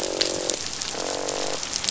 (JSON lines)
{"label": "biophony, croak", "recorder": "SoundTrap 500"}